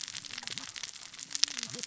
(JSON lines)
{"label": "biophony, cascading saw", "recorder": "SoundTrap 600 or HydroMoth"}